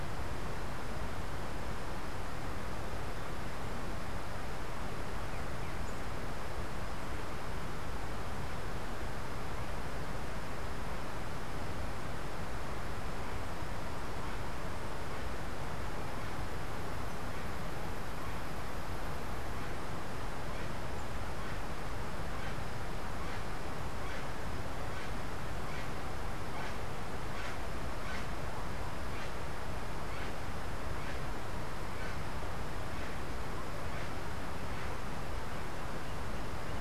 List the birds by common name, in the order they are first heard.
Bronze-winged Parrot